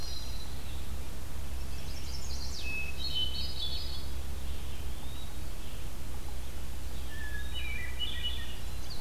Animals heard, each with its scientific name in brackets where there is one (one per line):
Hermit Thrush (Catharus guttatus)
Chestnut-sided Warbler (Setophaga pensylvanica)
Red-eyed Vireo (Vireo olivaceus)
Eastern Wood-Pewee (Contopus virens)